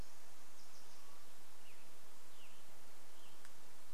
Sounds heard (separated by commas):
Western Tanager song, unidentified sound